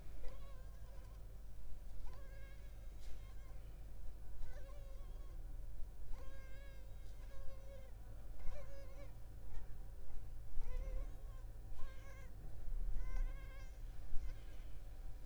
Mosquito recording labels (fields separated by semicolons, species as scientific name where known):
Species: Culex pipiens complex; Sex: female; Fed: unfed; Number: one; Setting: cup